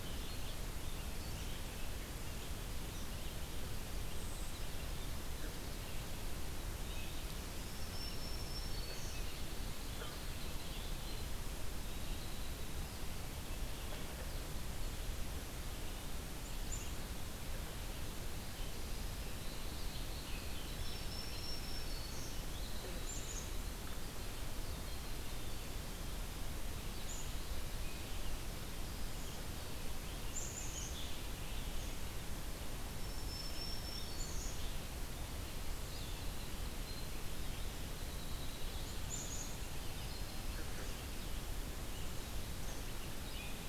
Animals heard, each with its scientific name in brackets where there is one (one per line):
Winter Wren (Troglodytes hiemalis)
Brown Creeper (Certhia americana)
Black-capped Chickadee (Poecile atricapillus)
Black-throated Green Warbler (Setophaga virens)
Red-eyed Vireo (Vireo olivaceus)